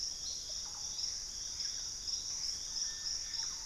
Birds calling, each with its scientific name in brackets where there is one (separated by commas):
Plumbeous Pigeon (Patagioenas plumbea), Thrush-like Wren (Campylorhynchus turdinus), Gray Antbird (Cercomacra cinerascens), Russet-backed Oropendola (Psarocolius angustifrons)